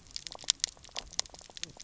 {"label": "biophony, knock croak", "recorder": "SoundTrap 300"}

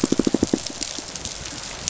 {"label": "biophony, pulse", "recorder": "SoundTrap 500"}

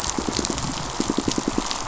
{"label": "biophony, pulse", "recorder": "SoundTrap 500"}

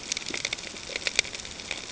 {"label": "ambient", "recorder": "HydroMoth"}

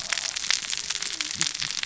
{"label": "biophony, cascading saw", "recorder": "SoundTrap 600 or HydroMoth"}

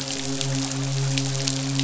{"label": "biophony, midshipman", "recorder": "SoundTrap 500"}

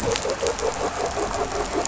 {"label": "anthrophony, boat engine", "recorder": "SoundTrap 500"}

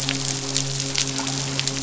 {"label": "biophony, midshipman", "recorder": "SoundTrap 500"}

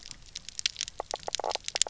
{"label": "biophony, knock croak", "recorder": "SoundTrap 300"}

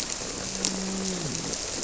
{"label": "biophony, grouper", "recorder": "SoundTrap 300"}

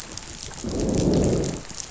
{"label": "biophony, growl", "recorder": "SoundTrap 500"}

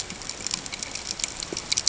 {"label": "ambient", "recorder": "HydroMoth"}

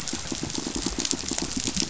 {"label": "biophony, pulse", "recorder": "SoundTrap 500"}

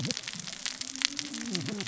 {"label": "biophony, cascading saw", "recorder": "SoundTrap 600 or HydroMoth"}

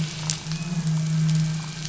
{"label": "anthrophony, boat engine", "recorder": "SoundTrap 500"}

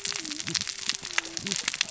{"label": "biophony, cascading saw", "recorder": "SoundTrap 600 or HydroMoth"}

